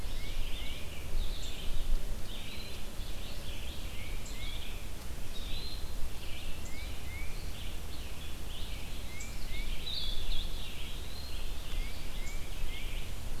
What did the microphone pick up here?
Red-eyed Vireo, Tufted Titmouse, Eastern Wood-Pewee, Blue-headed Vireo